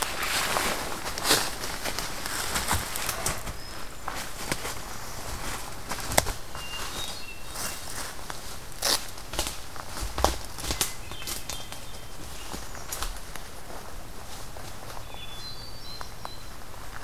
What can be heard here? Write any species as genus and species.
Catharus guttatus